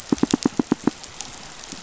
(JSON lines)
{"label": "biophony, pulse", "recorder": "SoundTrap 500"}